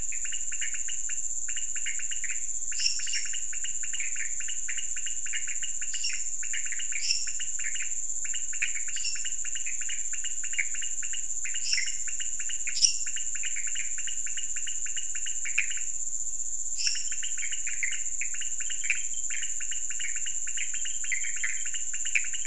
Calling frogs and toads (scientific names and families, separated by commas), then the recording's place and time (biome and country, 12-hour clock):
Leptodactylus podicipinus (Leptodactylidae), Dendropsophus minutus (Hylidae), Pithecopus azureus (Hylidae)
Cerrado, Brazil, 2:00am